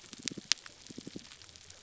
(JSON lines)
{"label": "biophony, damselfish", "recorder": "SoundTrap 300"}